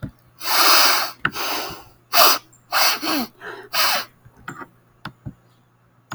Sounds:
Sniff